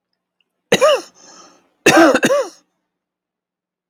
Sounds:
Cough